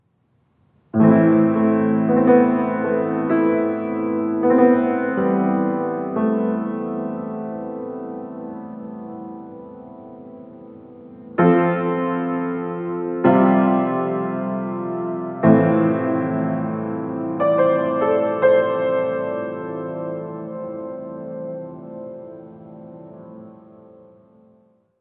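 A grand, dramatic piano piece with soft, emotive melodies creating a romantic, cinematic ambience. 0:00.0 - 0:07.1
The piano notes gradually soften and fade, with the last chord gently decaying into silence, leaving a lingering romantic ambience. 0:07.3 - 0:11.1
A grand, dramatic piano piece with soft, emotive melodies creating a romantic, cinematic ambience. 0:11.3 - 0:19.6
The piano notes gradually soften and fade, with the last chord gently decaying into silence, leaving a lingering romantic ambience. 0:19.8 - 0:24.8

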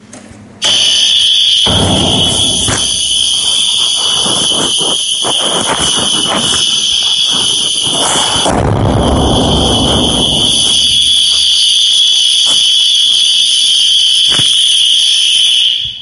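A loud, high-pitched siren wails continuously and gradually fades. 0:00.6 - 0:16.0
A loud banging sound occurs suddenly. 0:01.7 - 0:02.7
A second, much louder banging sound occurs and then gradually fades away. 0:08.4 - 0:10.7

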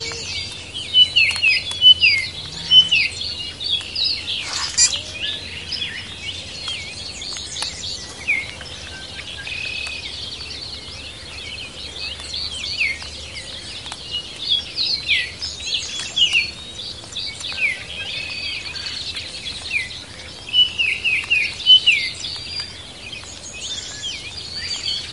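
Birds chirping in an uneven pattern. 0:00.0 - 0:25.1

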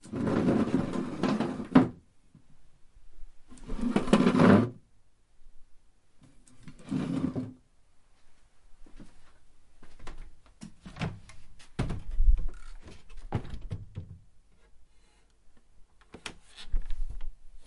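The sound of a large wooden object being moved against another. 0:00.0 - 0:02.0
The sound of a large wooden object being moved against another. 0:03.5 - 0:04.9
The sound of a large wooden object being moved against another. 0:06.9 - 0:07.6
Rubbing a small wooden object against another. 0:09.8 - 0:17.7

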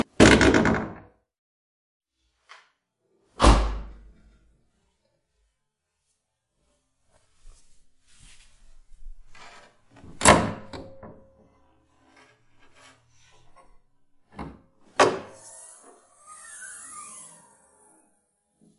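A bonnet makes a sound. 0:00.0 - 0:01.1
A car door is being opened or closed. 0:03.4 - 0:04.0
A fiddle is being played. 0:10.1 - 0:11.2
The bonnet is being raised. 0:14.4 - 0:17.4

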